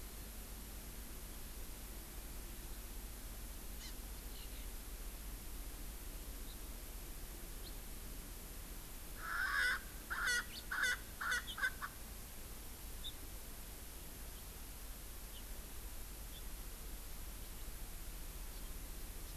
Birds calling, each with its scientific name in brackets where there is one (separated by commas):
Erckel's Francolin (Pternistis erckelii), House Finch (Haemorhous mexicanus), Eurasian Skylark (Alauda arvensis), Hawaii Amakihi (Chlorodrepanis virens)